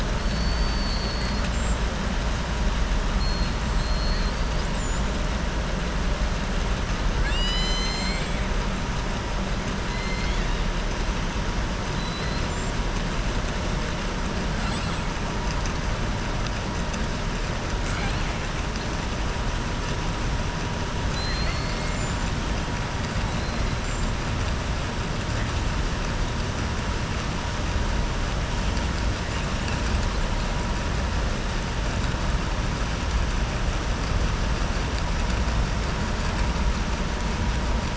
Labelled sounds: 0.2	1.5	killer whale, southern resident, 3.9 to 5.0 kHz
3.7	4.7	killer whale, southern resident, 3.3 to 5.1 kHz
7.1	8.4	killer whale, southern resident, 1.7 to 7.7 kHz
9.9	10.6	killer whale, southern resident, 1.6 to 5.2 kHz
11.9	12.5	killer whale, southern resident, 3.2 to 4.9 kHz
17.8	18.3	killer whale, southern resident, 0.80 to 4.4 kHz
21.0	22.3	killer whale, southern resident, 4.0 to 7.9 kHz

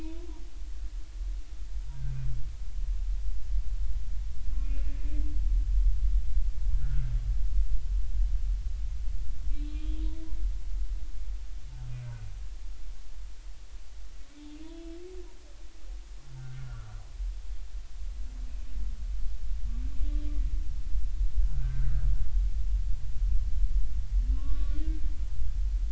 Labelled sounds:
4.6	4.8	humpback whale, 2.4 to 2.6 kHz
6.7	7.1	humpback whale, 1.3 to 1.7 kHz
9.6	10.0	humpback whale, 3.2 to 3.4 kHz
16.3	17.0	humpback whale, 1.3 to 1.6 kHz
21.4	22.1	humpback whale, 1.3 to 1.7 kHz
24.3	24.8	humpback whale, 0.96 to 1.5 kHz

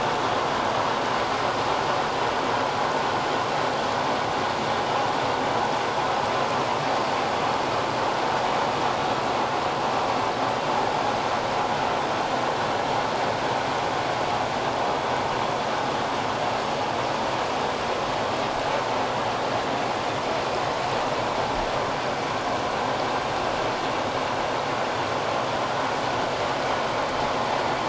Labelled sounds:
1.1	1.5	vessel noise, 1.8 to 1.9 kHz

